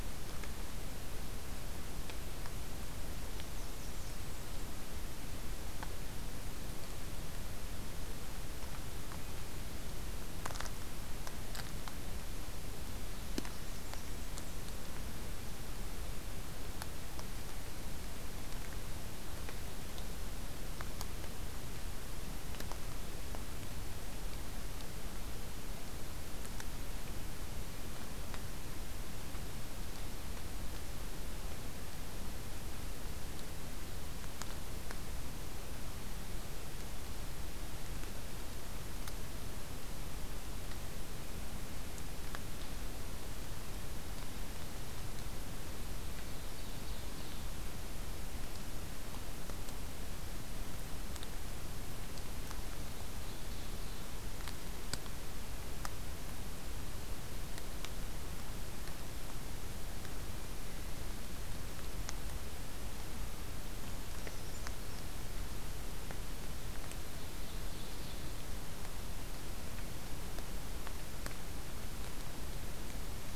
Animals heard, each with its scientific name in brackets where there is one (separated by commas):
Blackburnian Warbler (Setophaga fusca), Brown Creeper (Certhia americana), Ovenbird (Seiurus aurocapilla)